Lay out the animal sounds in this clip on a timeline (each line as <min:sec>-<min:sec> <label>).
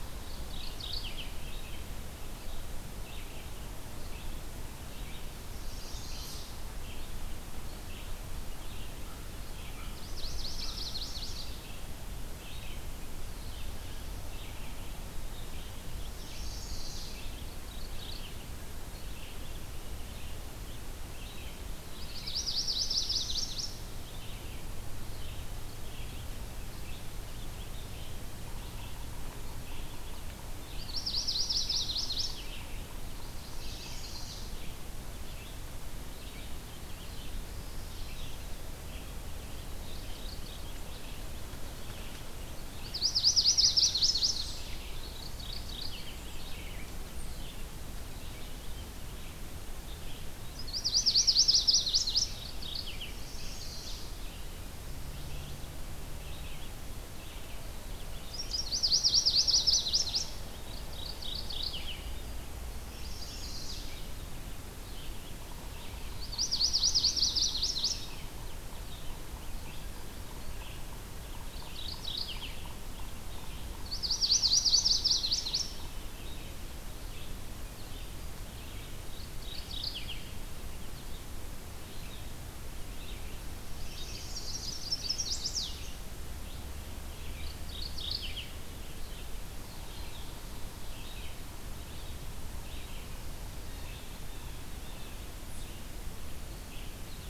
0:00.0-0:37.6 Red-eyed Vireo (Vireo olivaceus)
0:00.1-0:01.6 Mourning Warbler (Geothlypis philadelphia)
0:05.4-0:06.6 Chestnut-sided Warbler (Setophaga pensylvanica)
0:09.9-0:11.8 Chestnut-sided Warbler (Setophaga pensylvanica)
0:16.1-0:17.3 Chestnut-sided Warbler (Setophaga pensylvanica)
0:17.3-0:18.4 Mourning Warbler (Geothlypis philadelphia)
0:22.0-0:23.9 Chestnut-sided Warbler (Setophaga pensylvanica)
0:30.2-0:32.7 Chestnut-sided Warbler (Setophaga pensylvanica)
0:33.0-0:34.6 Chestnut-sided Warbler (Setophaga pensylvanica)
0:37.9-1:37.0 Red-eyed Vireo (Vireo olivaceus)
0:39.6-0:41.0 Mourning Warbler (Geothlypis philadelphia)
0:42.4-0:44.8 Chestnut-sided Warbler (Setophaga pensylvanica)
0:44.8-0:46.4 Mourning Warbler (Geothlypis philadelphia)
0:50.4-0:52.3 Chestnut-sided Warbler (Setophaga pensylvanica)
0:51.9-0:53.3 Mourning Warbler (Geothlypis philadelphia)
0:52.9-0:54.2 Chestnut-sided Warbler (Setophaga pensylvanica)
0:58.3-1:00.4 Chestnut-sided Warbler (Setophaga pensylvanica)
1:00.5-1:02.3 Mourning Warbler (Geothlypis philadelphia)
1:02.7-1:04.0 Chestnut-sided Warbler (Setophaga pensylvanica)
1:05.9-1:08.5 Chestnut-sided Warbler (Setophaga pensylvanica)
1:11.2-1:13.0 Mourning Warbler (Geothlypis philadelphia)
1:13.6-1:15.9 Chestnut-sided Warbler (Setophaga pensylvanica)
1:18.8-1:20.3 Mourning Warbler (Geothlypis philadelphia)
1:23.7-1:25.9 Chestnut-sided Warbler (Setophaga pensylvanica)
1:27.0-1:28.6 Mourning Warbler (Geothlypis philadelphia)
1:33.6-1:35.3 Blue Jay (Cyanocitta cristata)